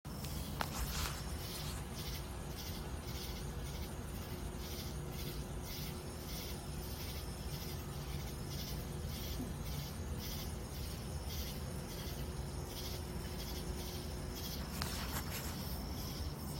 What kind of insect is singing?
orthopteran